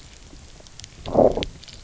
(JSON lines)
{"label": "biophony, low growl", "recorder": "SoundTrap 300"}